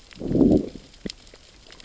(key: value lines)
label: biophony, growl
recorder: SoundTrap 600 or HydroMoth